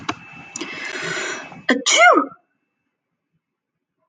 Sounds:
Sneeze